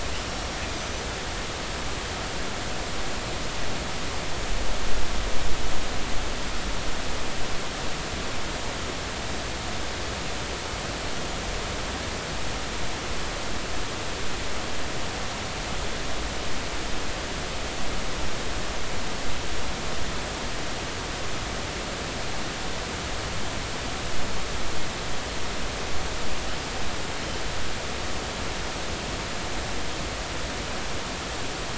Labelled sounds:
0.7	1.0	killer whale, northern resident, 5.9 to 6.0 kHz

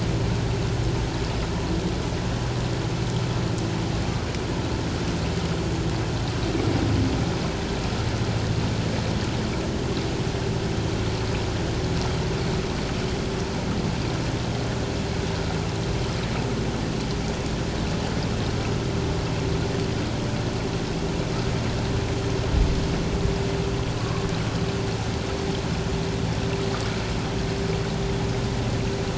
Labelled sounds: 24.0	24.3	humpback whale, 1.0 to 1.2 kHz

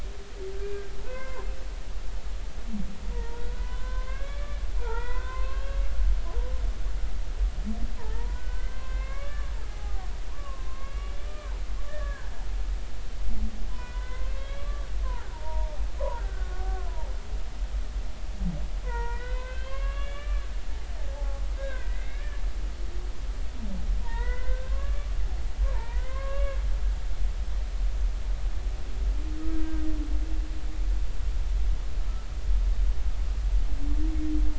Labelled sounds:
1.0	1.4	humpback whale, 0.86 to 2.2 kHz
3.1	5.8	humpback whale, 0.83 to 3.6 kHz
8.0	11.5	humpback whale, 0.80 to 3.1 kHz
11.9	12.3	humpback whale, 1.4 to 1.9 kHz
13.7	17.1	humpback whale, 0.80 to 3.9 kHz
18.8	22.4	humpback whale, 0.80 to 3.6 kHz
24.0	25.1	humpback whale, 0.86 to 2.1 kHz
25.6	26.6	humpback whale, 0.83 to 2.8 kHz

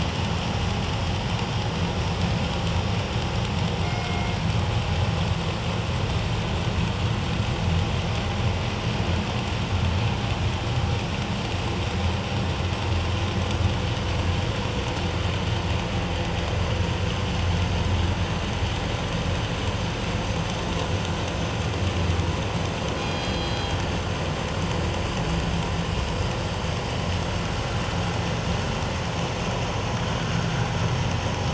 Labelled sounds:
3.8	4.4	killer whale, northern resident, G clan, 2.1 to 2.2 kHz
23.0	23.8	killer whale, northern resident, G clan, 2.4 to 4.9 kHz

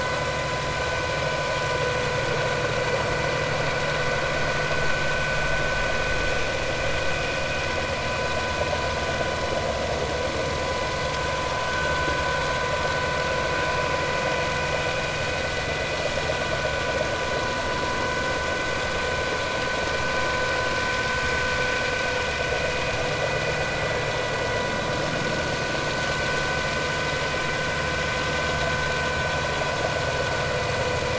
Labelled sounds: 11.7	12.0	vessel noise, 1.4 to 1.6 kHz

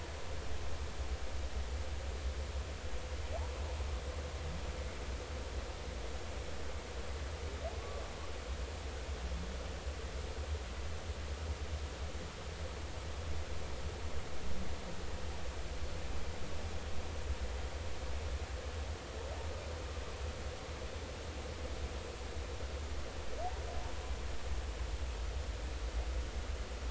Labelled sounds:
7.7	8.0	humpback whale, 0.99 to 1.2 kHz

